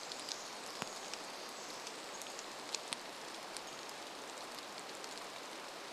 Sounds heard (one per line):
Pacific-slope Flycatcher call
rain
Pacific Wren song